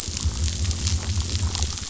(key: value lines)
label: biophony
recorder: SoundTrap 500